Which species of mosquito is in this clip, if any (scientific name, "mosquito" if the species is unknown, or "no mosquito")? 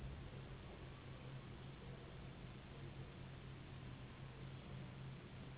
Anopheles gambiae s.s.